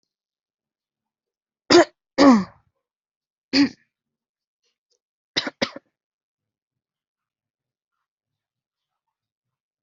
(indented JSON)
{
  "expert_labels": [
    {
      "quality": "good",
      "cough_type": "dry",
      "dyspnea": false,
      "wheezing": false,
      "stridor": false,
      "choking": false,
      "congestion": false,
      "nothing": true,
      "diagnosis": "healthy cough",
      "severity": "pseudocough/healthy cough"
    }
  ]
}